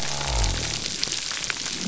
{"label": "biophony", "recorder": "SoundTrap 300"}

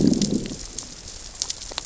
{"label": "biophony, growl", "recorder": "SoundTrap 600 or HydroMoth"}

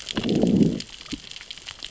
{"label": "biophony, growl", "recorder": "SoundTrap 600 or HydroMoth"}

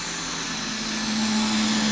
{"label": "anthrophony, boat engine", "recorder": "SoundTrap 500"}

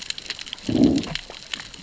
{"label": "biophony, growl", "recorder": "SoundTrap 600 or HydroMoth"}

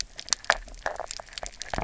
{"label": "biophony, knock croak", "recorder": "SoundTrap 300"}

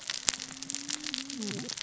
{"label": "biophony, cascading saw", "recorder": "SoundTrap 600 or HydroMoth"}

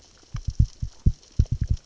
{"label": "biophony, knock", "recorder": "SoundTrap 600 or HydroMoth"}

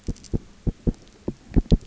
{"label": "biophony, knock", "recorder": "SoundTrap 300"}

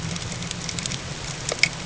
{"label": "ambient", "recorder": "HydroMoth"}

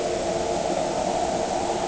{"label": "anthrophony, boat engine", "recorder": "HydroMoth"}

